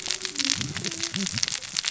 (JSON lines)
{"label": "biophony, cascading saw", "recorder": "SoundTrap 600 or HydroMoth"}